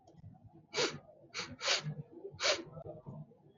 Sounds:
Sniff